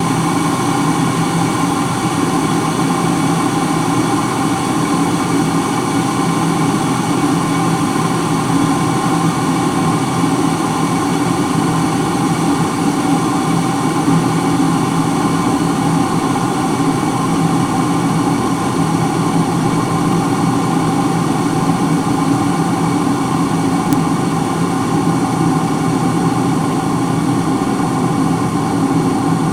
Is the noise being made constant?
yes